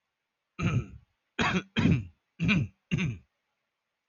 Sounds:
Throat clearing